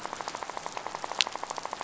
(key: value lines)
label: biophony, rattle
recorder: SoundTrap 500